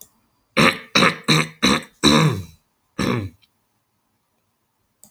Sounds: Throat clearing